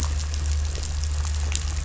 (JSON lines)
{"label": "anthrophony, boat engine", "recorder": "SoundTrap 500"}